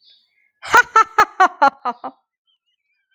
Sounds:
Laughter